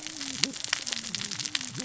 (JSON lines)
{"label": "biophony, cascading saw", "recorder": "SoundTrap 600 or HydroMoth"}